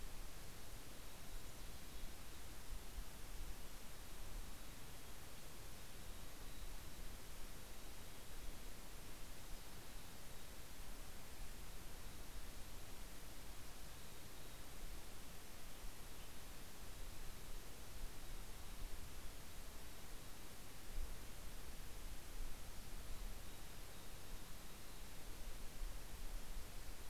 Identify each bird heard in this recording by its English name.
Mountain Chickadee, Western Tanager